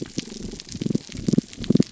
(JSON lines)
{"label": "biophony, damselfish", "recorder": "SoundTrap 300"}